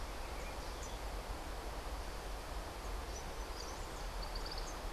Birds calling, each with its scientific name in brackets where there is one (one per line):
Cabanis's Wren (Cantorchilus modestus)